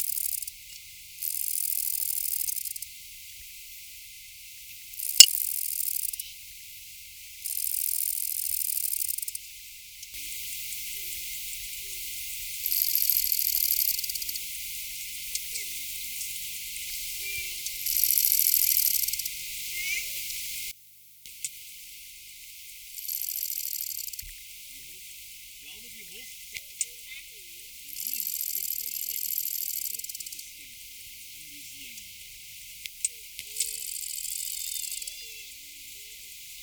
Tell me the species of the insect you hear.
Conocephalus fuscus